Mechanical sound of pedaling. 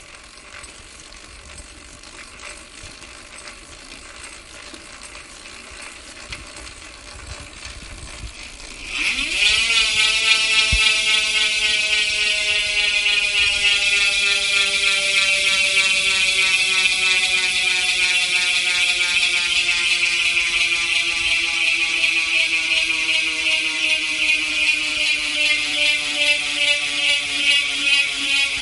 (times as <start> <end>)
0.0 8.7